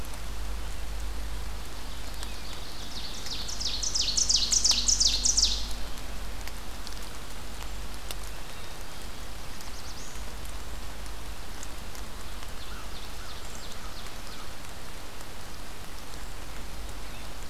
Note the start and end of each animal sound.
[2.15, 5.84] Ovenbird (Seiurus aurocapilla)
[8.22, 9.48] Black-capped Chickadee (Poecile atricapillus)
[8.92, 10.38] Black-throated Blue Warbler (Setophaga caerulescens)
[11.91, 14.63] American Crow (Corvus brachyrhynchos)
[12.08, 14.77] Ovenbird (Seiurus aurocapilla)

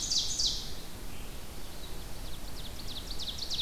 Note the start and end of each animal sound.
[0.00, 0.56] Ovenbird (Seiurus aurocapilla)
[0.58, 3.61] Red-eyed Vireo (Vireo olivaceus)
[2.06, 3.61] Ovenbird (Seiurus aurocapilla)

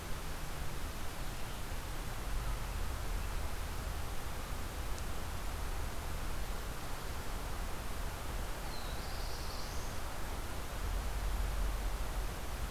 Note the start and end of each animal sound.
[8.38, 10.26] Black-throated Blue Warbler (Setophaga caerulescens)

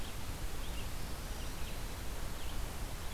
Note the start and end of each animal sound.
[0.00, 3.14] Red-eyed Vireo (Vireo olivaceus)

